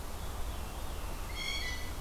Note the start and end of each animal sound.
[0.07, 1.21] Veery (Catharus fuscescens)
[1.04, 1.94] Blue Jay (Cyanocitta cristata)

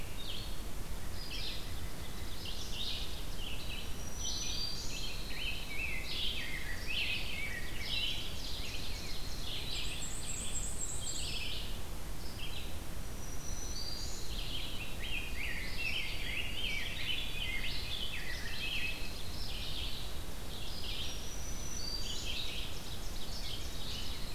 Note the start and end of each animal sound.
[0.00, 24.35] Red-eyed Vireo (Vireo olivaceus)
[3.73, 5.16] Black-throated Green Warbler (Setophaga virens)
[4.35, 8.28] Rose-breasted Grosbeak (Pheucticus ludovicianus)
[4.59, 5.88] Dark-eyed Junco (Junco hyemalis)
[7.47, 9.47] Ovenbird (Seiurus aurocapilla)
[8.55, 9.85] Dark-eyed Junco (Junco hyemalis)
[9.71, 11.44] Black-and-white Warbler (Mniotilta varia)
[12.74, 14.41] Black-throated Green Warbler (Setophaga virens)
[14.32, 19.11] Rose-breasted Grosbeak (Pheucticus ludovicianus)
[15.08, 18.80] White-throated Sparrow (Zonotrichia albicollis)
[17.69, 19.41] Ovenbird (Seiurus aurocapilla)
[18.32, 19.53] Dark-eyed Junco (Junco hyemalis)
[20.83, 22.29] Black-throated Green Warbler (Setophaga virens)
[21.96, 23.98] Ovenbird (Seiurus aurocapilla)

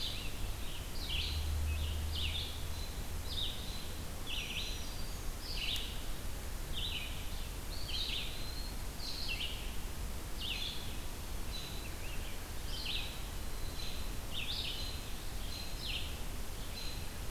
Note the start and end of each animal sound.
[0.00, 17.05] Red-eyed Vireo (Vireo olivaceus)
[4.18, 5.38] Black-throated Green Warbler (Setophaga virens)
[7.42, 9.38] Eastern Wood-Pewee (Contopus virens)
[11.33, 12.05] American Robin (Turdus migratorius)
[14.71, 15.15] American Robin (Turdus migratorius)
[15.44, 15.89] American Robin (Turdus migratorius)
[16.54, 17.31] American Robin (Turdus migratorius)

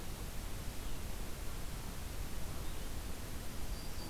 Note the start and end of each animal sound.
[0.66, 4.09] Red-eyed Vireo (Vireo olivaceus)
[3.56, 4.09] Yellow-rumped Warbler (Setophaga coronata)

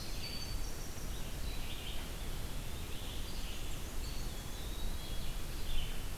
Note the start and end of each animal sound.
[0.00, 1.67] Winter Wren (Troglodytes hiemalis)
[0.00, 6.17] Red-eyed Vireo (Vireo olivaceus)
[3.79, 5.03] Eastern Wood-Pewee (Contopus virens)
[4.46, 5.49] Black-capped Chickadee (Poecile atricapillus)

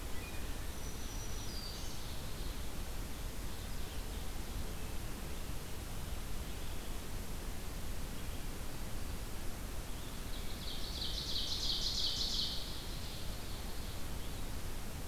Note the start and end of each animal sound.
[0.00, 0.73] Wood Thrush (Hylocichla mustelina)
[0.54, 2.32] Black-throated Green Warbler (Setophaga virens)
[0.92, 4.70] Ovenbird (Seiurus aurocapilla)
[10.26, 14.15] Ovenbird (Seiurus aurocapilla)

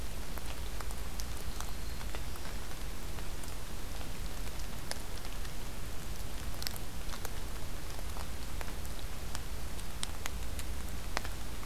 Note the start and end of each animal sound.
[1.31, 2.61] Black-throated Green Warbler (Setophaga virens)

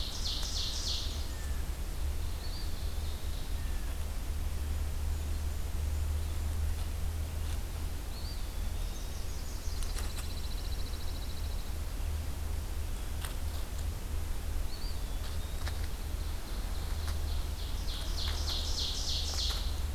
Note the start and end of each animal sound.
[0.00, 1.29] Ovenbird (Seiurus aurocapilla)
[2.30, 3.61] Eastern Wood-Pewee (Contopus virens)
[4.38, 6.38] Blackburnian Warbler (Setophaga fusca)
[8.11, 9.24] Eastern Wood-Pewee (Contopus virens)
[8.67, 10.39] Northern Parula (Setophaga americana)
[9.66, 11.90] Pine Warbler (Setophaga pinus)
[14.70, 15.87] Eastern Wood-Pewee (Contopus virens)
[15.72, 19.94] Ovenbird (Seiurus aurocapilla)

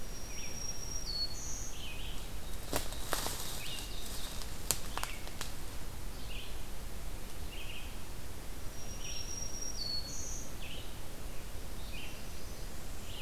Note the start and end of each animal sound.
[0.00, 1.88] Black-throated Green Warbler (Setophaga virens)
[0.00, 13.21] Red-eyed Vireo (Vireo olivaceus)
[2.28, 4.43] Ovenbird (Seiurus aurocapilla)
[8.60, 10.55] Black-throated Green Warbler (Setophaga virens)
[11.62, 13.21] Northern Parula (Setophaga americana)

